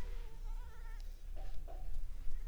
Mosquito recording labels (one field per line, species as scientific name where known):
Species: Anopheles arabiensis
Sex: female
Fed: unfed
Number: one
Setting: cup